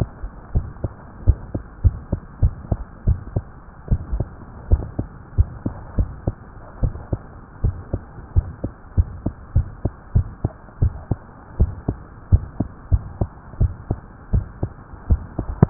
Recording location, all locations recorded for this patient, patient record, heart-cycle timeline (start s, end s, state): tricuspid valve (TV)
aortic valve (AV)+pulmonary valve (PV)+tricuspid valve (TV)+mitral valve (MV)
#Age: Child
#Sex: Female
#Height: 108.0 cm
#Weight: 16.2 kg
#Pregnancy status: False
#Murmur: Present
#Murmur locations: aortic valve (AV)+mitral valve (MV)+pulmonary valve (PV)+tricuspid valve (TV)
#Most audible location: pulmonary valve (PV)
#Systolic murmur timing: Early-systolic
#Systolic murmur shape: Decrescendo
#Systolic murmur grading: II/VI
#Systolic murmur pitch: Medium
#Systolic murmur quality: Blowing
#Diastolic murmur timing: nan
#Diastolic murmur shape: nan
#Diastolic murmur grading: nan
#Diastolic murmur pitch: nan
#Diastolic murmur quality: nan
#Outcome: Abnormal
#Campaign: 2015 screening campaign
0.00	0.52	unannotated
0.52	0.68	S1
0.68	0.82	systole
0.82	0.94	S2
0.94	1.20	diastole
1.20	1.36	S1
1.36	1.52	systole
1.52	1.64	S2
1.64	1.84	diastole
1.84	1.98	S1
1.98	2.12	systole
2.12	2.22	S2
2.22	2.40	diastole
2.40	2.54	S1
2.54	2.70	systole
2.70	2.80	S2
2.80	3.06	diastole
3.06	3.20	S1
3.20	3.34	systole
3.34	3.46	S2
3.46	3.87	diastole
3.87	4.00	S1
4.00	4.16	systole
4.16	4.28	S2
4.28	4.67	diastole
4.67	4.83	S1
4.83	4.95	systole
4.95	5.07	S2
5.07	5.36	diastole
5.36	5.50	S1
5.50	5.62	systole
5.62	5.74	S2
5.74	5.96	diastole
5.96	6.10	S1
6.10	6.26	systole
6.26	6.34	S2
6.34	6.79	diastole
6.79	6.94	S1
6.94	7.10	systole
7.10	7.20	S2
7.20	7.60	diastole
7.60	7.76	S1
7.76	7.90	systole
7.90	8.02	S2
8.02	8.30	diastole
8.30	8.48	S1
8.48	8.62	systole
8.62	8.74	S2
8.74	8.93	diastole
8.93	9.10	S1
9.10	9.22	systole
9.22	9.34	S2
9.34	9.52	diastole
9.52	9.68	S1
9.68	9.82	systole
9.82	9.92	S2
9.92	10.12	diastole
10.12	10.28	S1
10.28	10.40	systole
10.40	10.54	S2
10.54	10.78	diastole
10.78	10.93	S1
10.93	11.08	systole
11.08	11.20	S2
11.20	11.58	diastole
11.58	11.74	S1
11.74	11.85	systole
11.85	12.00	S2
12.00	12.26	diastole
12.26	12.44	S1
12.44	12.56	systole
12.56	12.68	S2
12.68	12.90	diastole
12.90	13.04	S1
13.04	13.18	systole
13.18	13.32	S2
13.32	13.58	diastole
13.58	13.74	S1
13.74	13.87	systole
13.87	14.04	S2
14.04	14.29	diastole
14.29	14.48	S1
14.48	15.70	unannotated